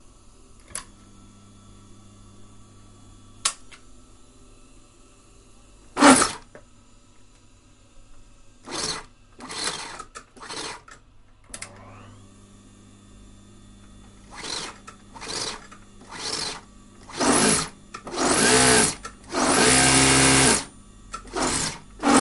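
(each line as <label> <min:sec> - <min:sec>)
A click sound. 0:00.7 - 0:00.9
A click sound. 0:03.4 - 0:03.6
A machine starting up. 0:05.9 - 0:06.4
Multiple sewing machines running at low speed. 0:08.6 - 0:10.9
A click sound. 0:11.5 - 0:11.7
Multiple sewing machines running at low speed. 0:14.4 - 0:16.6
Loud sewing machines operating at high speed. 0:17.2 - 0:20.7
Sewing machines operating at high speed. 0:21.2 - 0:22.2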